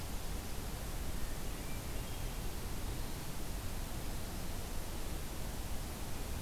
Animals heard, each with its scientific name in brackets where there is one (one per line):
Hermit Thrush (Catharus guttatus)